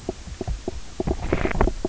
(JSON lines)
{"label": "biophony, knock croak", "recorder": "SoundTrap 300"}